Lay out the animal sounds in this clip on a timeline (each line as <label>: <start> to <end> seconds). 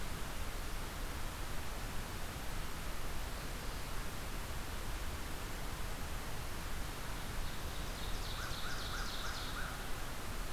Ovenbird (Seiurus aurocapilla): 7.1 to 9.8 seconds
American Crow (Corvus brachyrhynchos): 8.1 to 10.1 seconds